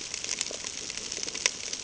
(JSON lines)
{"label": "ambient", "recorder": "HydroMoth"}